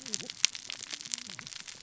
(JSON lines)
{"label": "biophony, cascading saw", "recorder": "SoundTrap 600 or HydroMoth"}